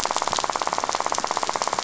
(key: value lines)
label: biophony, rattle
recorder: SoundTrap 500